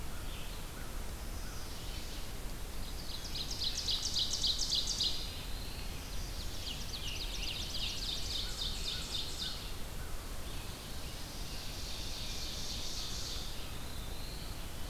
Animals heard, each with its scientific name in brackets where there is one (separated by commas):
Red-eyed Vireo (Vireo olivaceus), American Crow (Corvus brachyrhynchos), Ovenbird (Seiurus aurocapilla), Chestnut-sided Warbler (Setophaga pensylvanica), Black-throated Blue Warbler (Setophaga caerulescens), Scarlet Tanager (Piranga olivacea)